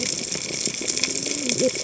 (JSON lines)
{"label": "biophony, cascading saw", "recorder": "HydroMoth"}